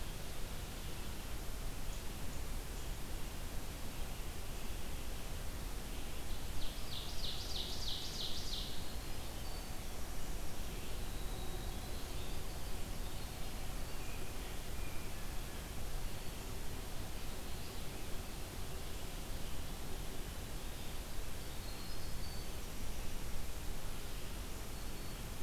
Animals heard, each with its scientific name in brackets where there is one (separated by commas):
Ovenbird (Seiurus aurocapilla), Winter Wren (Troglodytes hiemalis)